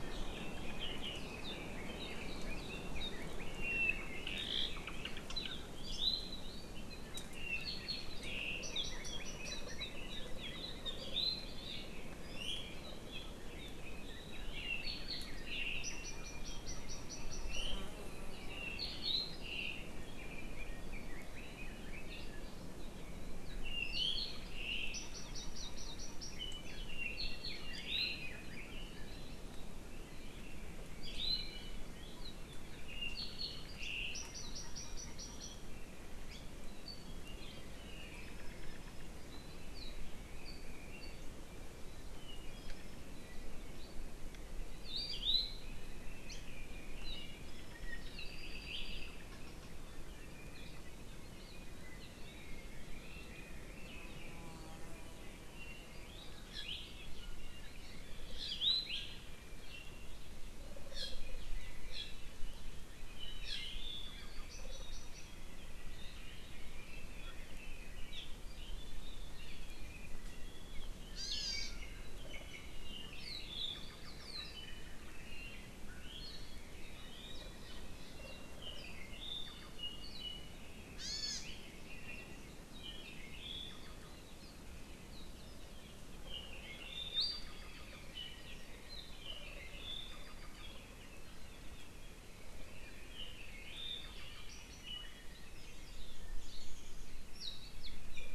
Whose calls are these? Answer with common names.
Apapane, Red-billed Leiothrix, Iiwi, Hawaii Amakihi